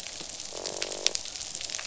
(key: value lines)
label: biophony, croak
recorder: SoundTrap 500